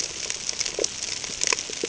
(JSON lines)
{"label": "ambient", "recorder": "HydroMoth"}